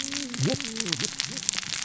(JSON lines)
{"label": "biophony, cascading saw", "recorder": "SoundTrap 600 or HydroMoth"}